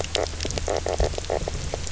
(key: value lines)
label: biophony, knock croak
recorder: SoundTrap 300